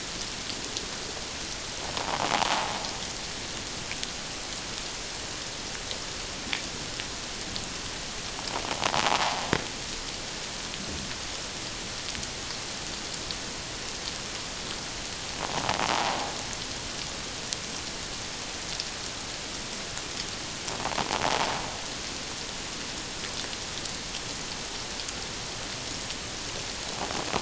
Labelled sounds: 1.9	2.2	invertebrate grinding on or near the hydrophone, 0.78 to 1.2 kHz
15.9	16.2	invertebrate grinding on or near the hydrophone, 0.78 to 1.1 kHz
20.8	21.1	invertebrate grinding on or near the hydrophone, 0.78 to 1.1 kHz

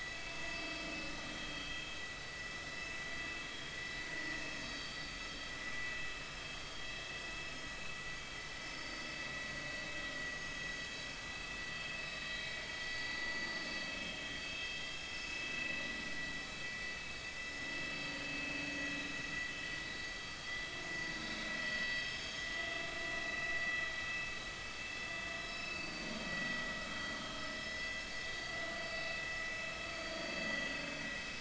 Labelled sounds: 1.3	1.9	vessel noise, 2.9 to 3.3 kHz
3.5	3.7	vessel noise, 3.2 to 3.3 kHz
4.6	5.3	vessel noise, 3.8 to 4.8 kHz
8.6	9.0	vessel noise, 4.4 to 5.3 kHz
10.2	10.5	vessel noise, 6.4 to 6.6 kHz
12.3	12.6	vessel noise, 3.8 to 4.0 kHz
14.5	15.3	vessel noise, 2.5 to 5.4 kHz
18.0	18.9	vessel noise, 4.5 to 6.5 kHz
22.0	22.5	vessel noise, 5.1 to 6.7 kHz
25.4	26.6	vessel noise, 1.9 to 5.3 kHz
27.7	28.2	vessel noise, 2.0 to 4.4 kHz
30.0	30.3	vessel noise, 4.4 to 4.6 kHz

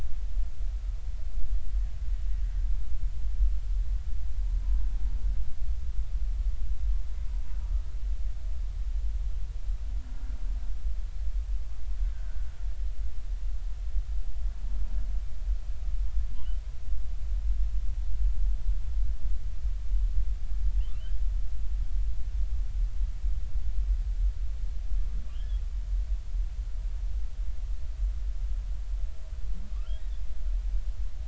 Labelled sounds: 12.1	12.5	humpback whale, 1.4 to 1.6 kHz
16.4	16.6	humpback whale, 2.8 to 3.1 kHz
25.3	25.6	humpback whale, 2.7 to 3.5 kHz

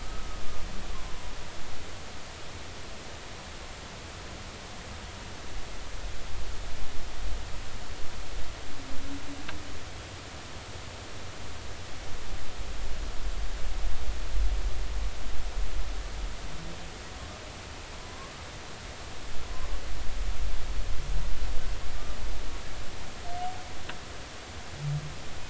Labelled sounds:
0.0	0.3	humpback whale, 1.2 to 1.3 kHz

